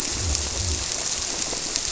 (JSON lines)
{"label": "biophony", "recorder": "SoundTrap 300"}